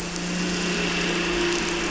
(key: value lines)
label: anthrophony, boat engine
recorder: SoundTrap 300